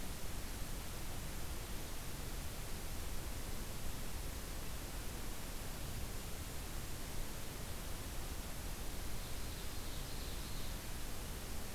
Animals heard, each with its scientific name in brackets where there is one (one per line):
Ovenbird (Seiurus aurocapilla)